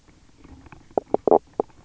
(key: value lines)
label: biophony, knock croak
recorder: SoundTrap 300